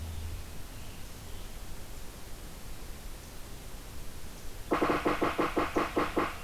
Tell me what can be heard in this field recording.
Yellow-bellied Sapsucker